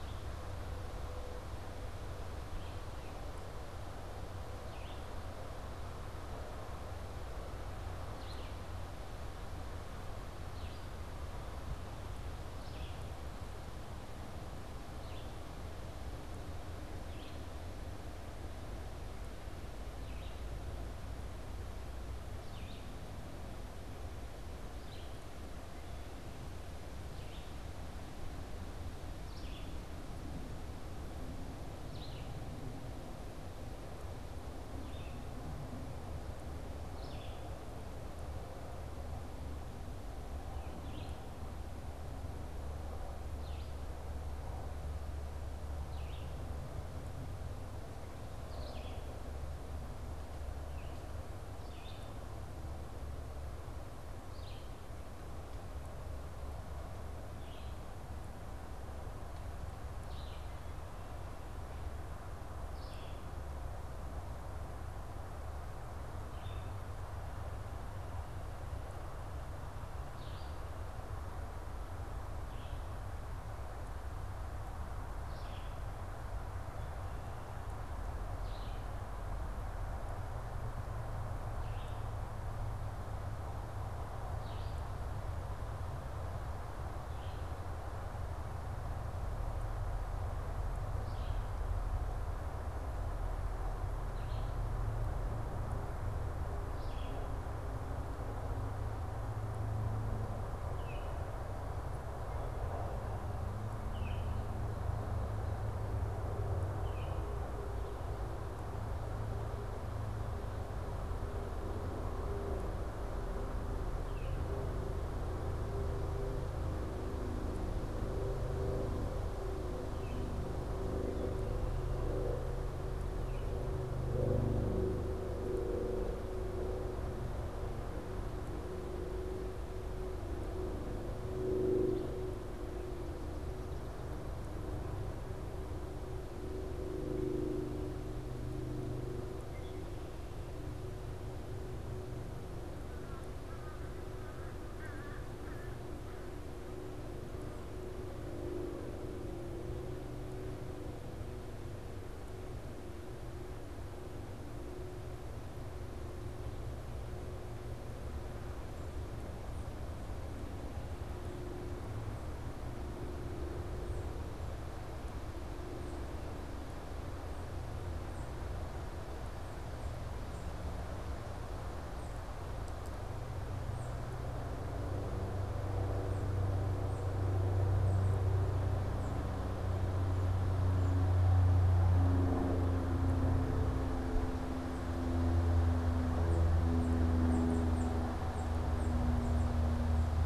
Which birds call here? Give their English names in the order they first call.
Red-eyed Vireo, Baltimore Oriole, American Crow, Tufted Titmouse